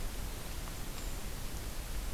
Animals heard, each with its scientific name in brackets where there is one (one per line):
Brown Creeper (Certhia americana)